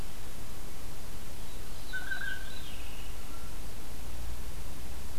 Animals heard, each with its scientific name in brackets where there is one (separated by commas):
Blue Jay (Cyanocitta cristata), Veery (Catharus fuscescens)